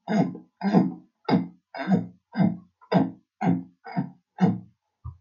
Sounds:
Throat clearing